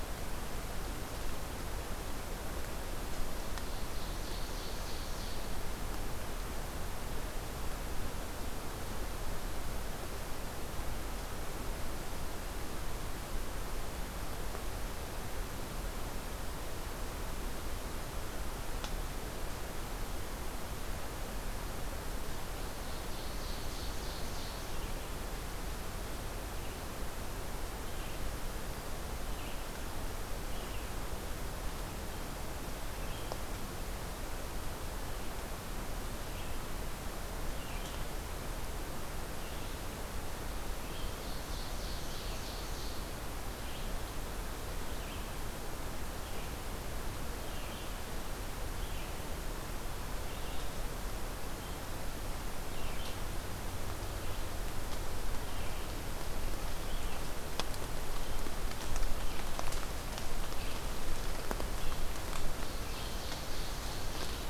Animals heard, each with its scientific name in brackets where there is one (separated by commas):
Ovenbird (Seiurus aurocapilla), Red-eyed Vireo (Vireo olivaceus)